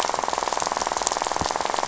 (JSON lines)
{"label": "biophony, rattle", "recorder": "SoundTrap 500"}